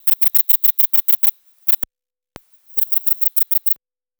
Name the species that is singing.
Sepiana sepium